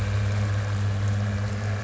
{"label": "anthrophony, boat engine", "recorder": "SoundTrap 300"}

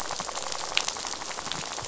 {"label": "biophony, rattle", "recorder": "SoundTrap 500"}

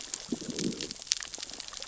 {"label": "biophony, growl", "recorder": "SoundTrap 600 or HydroMoth"}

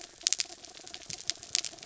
{"label": "anthrophony, mechanical", "recorder": "SoundTrap 300"}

